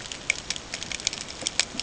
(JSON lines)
{"label": "ambient", "recorder": "HydroMoth"}